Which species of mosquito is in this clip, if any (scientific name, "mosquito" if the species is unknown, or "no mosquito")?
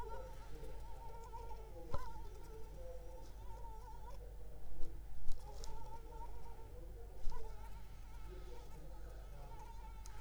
Anopheles arabiensis